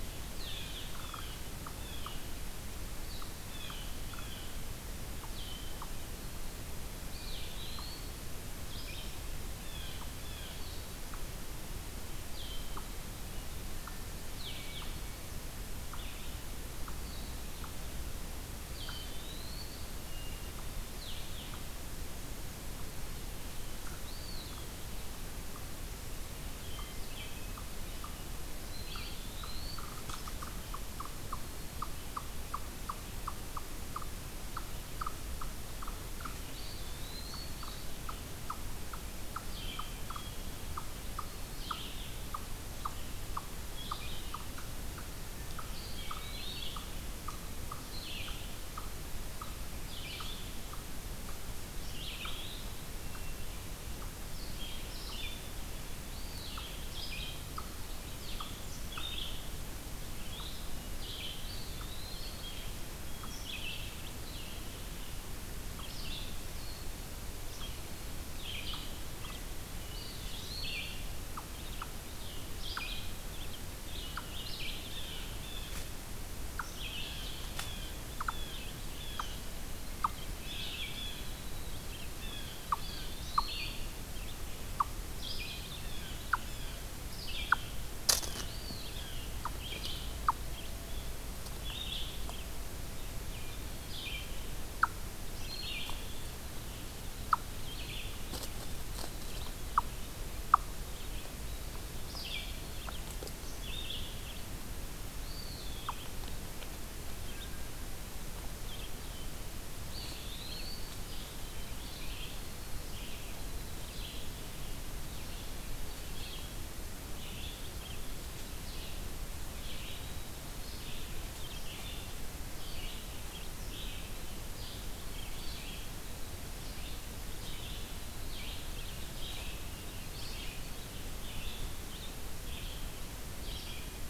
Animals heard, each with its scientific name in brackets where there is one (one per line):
Red-eyed Vireo (Vireo olivaceus)
Eastern Wood-Pewee (Contopus virens)
Hermit Thrush (Catharus guttatus)
Blue-headed Vireo (Vireo solitarius)
unknown mammal
Blue Jay (Cyanocitta cristata)